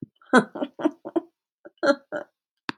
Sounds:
Laughter